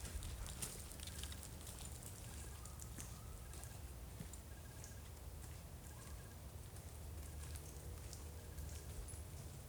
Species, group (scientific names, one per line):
Oecanthus fultoni
Orthoptera